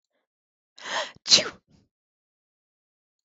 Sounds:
Sneeze